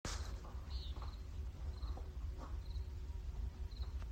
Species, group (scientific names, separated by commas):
Gryllus pennsylvanicus, Orthoptera